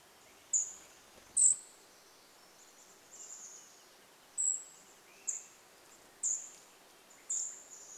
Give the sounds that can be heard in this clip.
Swainson's Thrush song, Wrentit song, Cedar Waxwing call, Chestnut-backed Chickadee call, Swainson's Thrush call